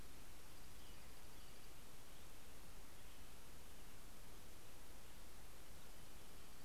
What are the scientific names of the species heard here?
Turdus migratorius, Junco hyemalis